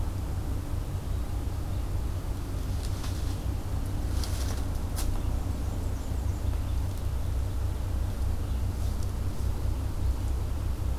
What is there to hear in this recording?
Black-and-white Warbler